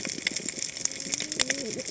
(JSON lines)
{"label": "biophony, cascading saw", "recorder": "HydroMoth"}